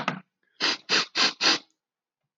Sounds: Sniff